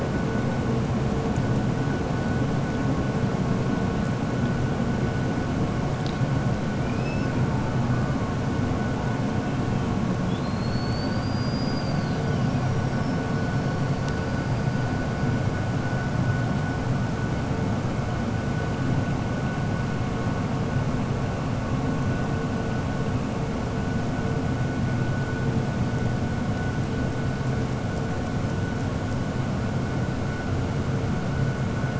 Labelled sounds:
6.7	7.3	killer whale, 2.3 to 5.5 kHz

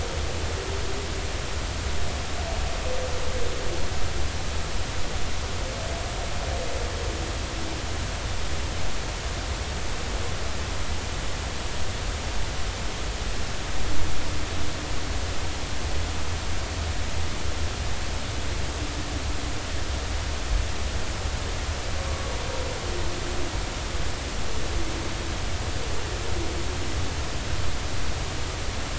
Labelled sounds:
22.0	22.3	humpback whale, 1.1 to 1.2 kHz

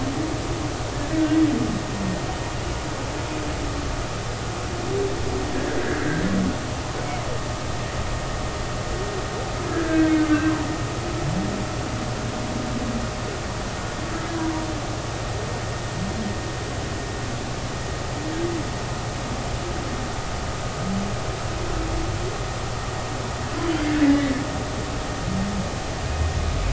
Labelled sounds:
5.5	6.2	humpback whale, 1.5 to 1.8 kHz
9.7	10.5	humpback whale, 1.5 to 1.7 kHz
24.0	24.3	humpback whale, 1.9 to 2.1 kHz

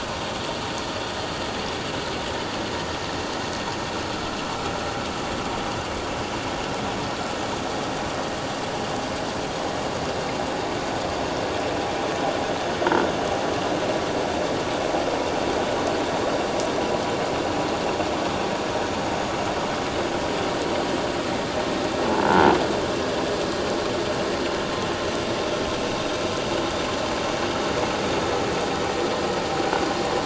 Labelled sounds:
22.1	22.4	croaking sound likely from a nearby submerged object, 0.81 to 0.91 kHz

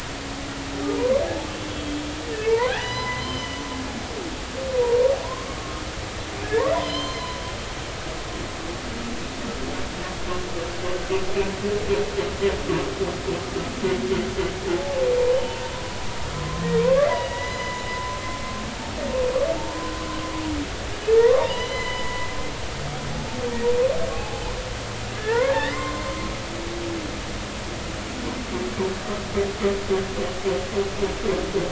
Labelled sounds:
1.2	2.0	humpback whale, 0.80 to 3.4 kHz
2.5	3.6	humpback whale, 0.80 to 6.0 kHz
6.4	7.4	humpback whale, 0.93 to 6.3 kHz
14.7	15.6	humpback whale, 0.80 to 3.1 kHz
16.3	17.9	humpback whale, 0.93 to 5.1 kHz
21.2	22.3	humpback whale, 0.86 to 7.0 kHz
24.1	24.4	humpback whale, 0.80 to 0.90 kHz
25.2	26.2	humpback whale, 0.86 to 2.2 kHz

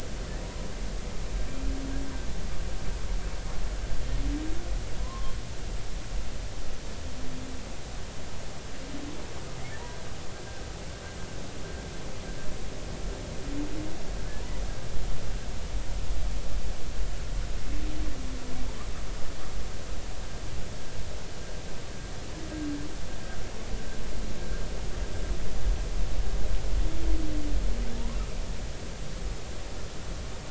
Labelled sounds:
6.0	6.3	humpback whale, 0.93 to 1.1 kHz

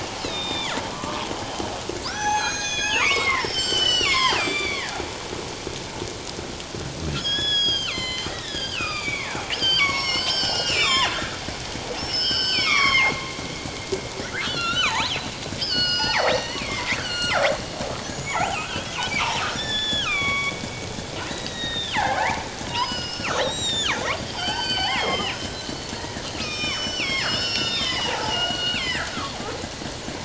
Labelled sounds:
0.2	1.3	killer whale, northern resident, G clan, 0.97 to 4.3 kHz
2.0	4.9	killer whale, northern resident, G clan, 0.78 to 7.7 kHz
7.1	13.2	killer whale, northern resident, G clan, 0.78 to 7.9 kHz
14.3	15.3	killer whale, northern resident, G clan, call N28, 0.78 to 4.6 kHz
15.6	17.4	killer whale, northern resident, G clan, call N28, 0.78 to 8.0 kHz
18.1	20.6	killer whale, northern resident, G clan, 0.78 to 7.1 kHz
21.2	29.4	killer whale, northern resident, G clan, 0.78 to 7.6 kHz

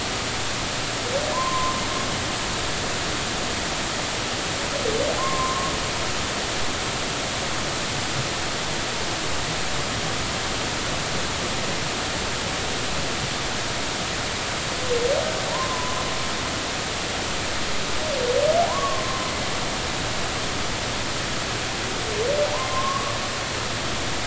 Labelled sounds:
1.3	1.8	humpback whale, 0.93 to 1.1 kHz
5.2	5.7	humpback whale, 0.99 to 1.1 kHz
15.5	16.0	humpback whale, 0.90 to 1.1 kHz
18.7	19.3	humpback whale, 0.93 to 1.2 kHz
22.5	23.2	humpback whale, 0.83 to 1.2 kHz

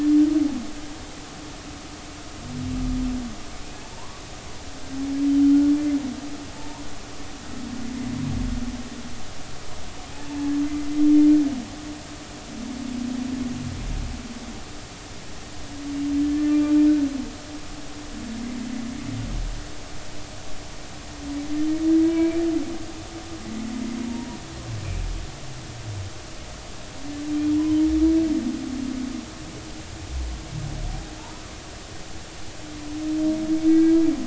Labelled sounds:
3.9	4.2	humpback whale, 0.86 to 1.2 kHz
6.5	6.9	humpback whale, 0.86 to 1.1 kHz
10.1	10.5	humpback whale, 0.80 to 0.93 kHz
16.2	16.7	humpback whale, 1.1 to 1.9 kHz
22.1	22.4	humpback whale, 0.93 to 2.4 kHz
27.3	27.6	humpback whale, 3.1 to 3.4 kHz
33.7	34.0	humpback whale, 1.6 to 1.7 kHz

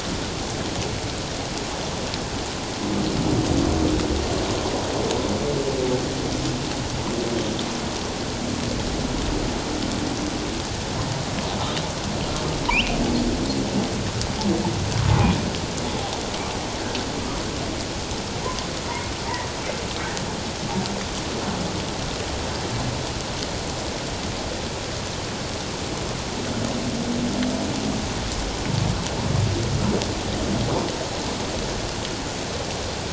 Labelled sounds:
12.7	13.0	humpback whale, 2.1 to 3.2 kHz

